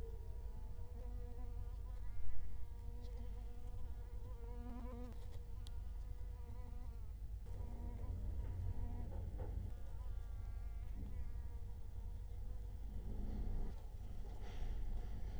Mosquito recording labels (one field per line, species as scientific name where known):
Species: Culex quinquefasciatus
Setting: cup